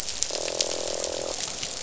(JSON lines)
{"label": "biophony, croak", "recorder": "SoundTrap 500"}